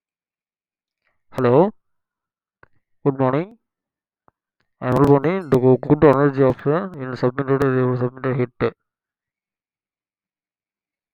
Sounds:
Cough